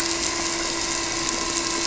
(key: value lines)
label: anthrophony, boat engine
recorder: SoundTrap 300